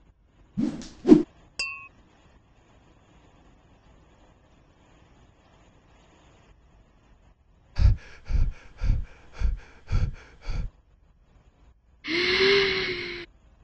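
At 0.56 seconds, whooshing can be heard. Then, at 1.58 seconds, there is the sound of glass. After that, at 7.75 seconds, breathing is audible. Later, at 12.04 seconds, there is breathing. A soft noise lies about 35 decibels below the sounds.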